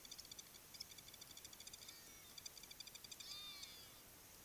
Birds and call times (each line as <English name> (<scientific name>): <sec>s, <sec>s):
Hadada Ibis (Bostrychia hagedash): 3.4s